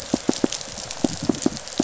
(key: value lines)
label: biophony, pulse
recorder: SoundTrap 500